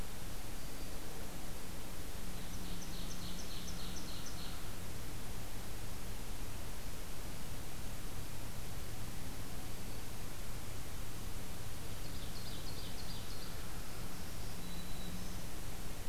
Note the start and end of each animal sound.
[0.51, 1.12] Black-throated Green Warbler (Setophaga virens)
[2.34, 4.60] Ovenbird (Seiurus aurocapilla)
[9.46, 10.02] Black-throated Green Warbler (Setophaga virens)
[11.80, 13.54] Ovenbird (Seiurus aurocapilla)
[13.98, 15.48] Black-throated Green Warbler (Setophaga virens)

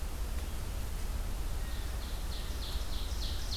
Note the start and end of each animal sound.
[1.66, 3.57] Ovenbird (Seiurus aurocapilla)

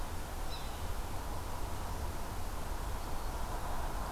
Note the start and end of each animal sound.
[0.19, 0.97] Yellow-bellied Sapsucker (Sphyrapicus varius)

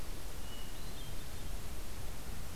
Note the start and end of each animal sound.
[0.43, 1.50] Hermit Thrush (Catharus guttatus)

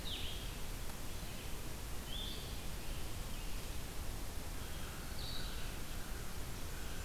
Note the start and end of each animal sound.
[0.00, 7.05] Blue-headed Vireo (Vireo solitarius)
[4.77, 7.05] American Crow (Corvus brachyrhynchos)

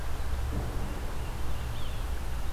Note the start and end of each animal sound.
[0.54, 1.83] Tufted Titmouse (Baeolophus bicolor)
[1.55, 2.15] Yellow-bellied Sapsucker (Sphyrapicus varius)

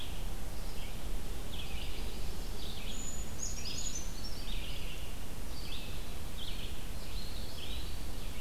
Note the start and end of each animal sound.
[0.00, 8.41] Red-eyed Vireo (Vireo olivaceus)
[1.47, 2.75] Yellow-rumped Warbler (Setophaga coronata)
[2.69, 4.58] Brown Creeper (Certhia americana)
[7.06, 8.18] Eastern Wood-Pewee (Contopus virens)

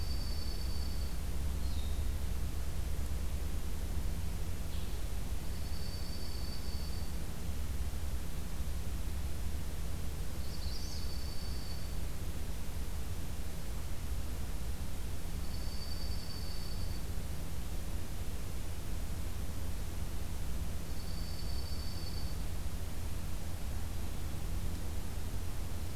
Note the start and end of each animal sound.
[0.00, 1.35] Dark-eyed Junco (Junco hyemalis)
[0.00, 5.07] Blue-headed Vireo (Vireo solitarius)
[5.36, 7.23] Dark-eyed Junco (Junco hyemalis)
[10.28, 11.07] Magnolia Warbler (Setophaga magnolia)
[10.30, 12.04] Dark-eyed Junco (Junco hyemalis)
[15.23, 17.07] Dark-eyed Junco (Junco hyemalis)
[20.80, 22.43] Dark-eyed Junco (Junco hyemalis)

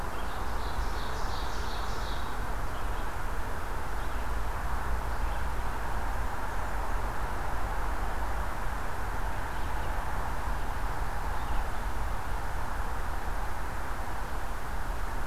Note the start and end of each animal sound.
[0.00, 2.52] Ovenbird (Seiurus aurocapilla)
[11.04, 15.27] Red-eyed Vireo (Vireo olivaceus)

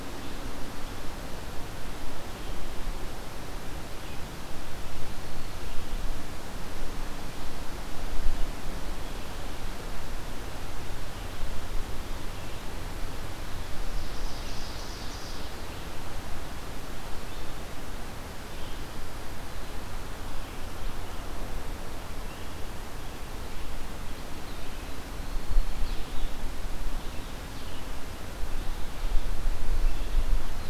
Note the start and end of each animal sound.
[0.00, 30.69] Red-eyed Vireo (Vireo olivaceus)
[13.65, 15.69] Ovenbird (Seiurus aurocapilla)
[25.01, 25.84] Black-throated Green Warbler (Setophaga virens)

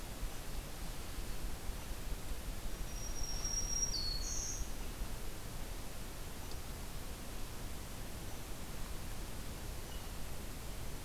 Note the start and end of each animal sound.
[2.56, 4.77] Black-throated Green Warbler (Setophaga virens)

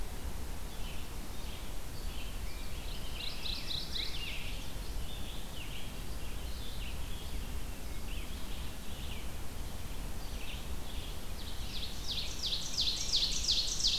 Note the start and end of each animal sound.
[0.00, 13.98] Red-eyed Vireo (Vireo olivaceus)
[2.08, 4.66] Rose-breasted Grosbeak (Pheucticus ludovicianus)
[2.85, 4.48] Mourning Warbler (Geothlypis philadelphia)
[11.10, 13.98] Ovenbird (Seiurus aurocapilla)
[12.68, 13.98] Rose-breasted Grosbeak (Pheucticus ludovicianus)

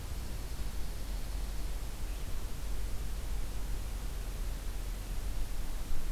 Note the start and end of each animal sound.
[0.00, 1.83] Dark-eyed Junco (Junco hyemalis)

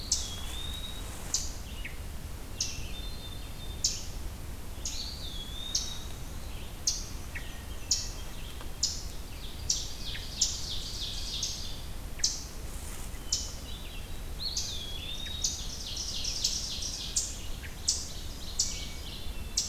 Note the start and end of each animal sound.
[0.00, 1.19] Eastern Wood-Pewee (Contopus virens)
[0.00, 19.68] Eastern Chipmunk (Tamias striatus)
[2.42, 4.03] Hermit Thrush (Catharus guttatus)
[4.81, 6.28] Eastern Wood-Pewee (Contopus virens)
[4.88, 6.47] Black-and-white Warbler (Mniotilta varia)
[6.90, 8.19] Black-and-white Warbler (Mniotilta varia)
[7.20, 8.67] Hermit Thrush (Catharus guttatus)
[9.88, 11.86] Ovenbird (Seiurus aurocapilla)
[12.92, 14.48] Hermit Thrush (Catharus guttatus)
[14.27, 15.76] Eastern Wood-Pewee (Contopus virens)
[14.91, 19.34] Ovenbird (Seiurus aurocapilla)
[18.55, 19.68] Hermit Thrush (Catharus guttatus)

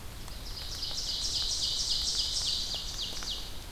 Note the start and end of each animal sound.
[0.27, 3.58] Ovenbird (Seiurus aurocapilla)

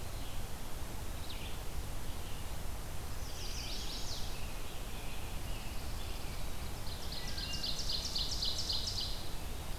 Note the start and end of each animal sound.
[3.00, 4.39] Chestnut-sided Warbler (Setophaga pensylvanica)
[4.28, 6.48] American Robin (Turdus migratorius)
[5.31, 6.47] Pine Warbler (Setophaga pinus)
[6.69, 9.37] Ovenbird (Seiurus aurocapilla)
[7.14, 7.72] Wood Thrush (Hylocichla mustelina)

